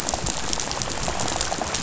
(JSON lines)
{"label": "biophony, rattle", "recorder": "SoundTrap 500"}